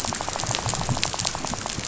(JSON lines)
{"label": "biophony, rattle", "recorder": "SoundTrap 500"}